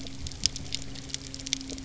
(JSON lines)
{"label": "anthrophony, boat engine", "recorder": "SoundTrap 300"}